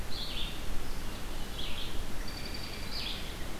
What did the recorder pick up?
Red-eyed Vireo, American Robin